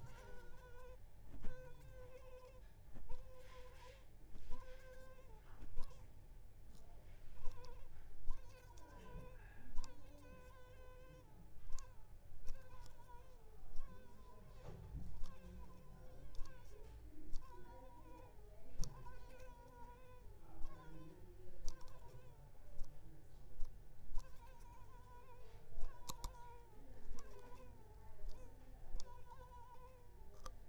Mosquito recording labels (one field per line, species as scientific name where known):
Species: Mansonia uniformis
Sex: female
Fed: unfed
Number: one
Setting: cup